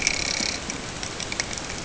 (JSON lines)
{"label": "ambient", "recorder": "HydroMoth"}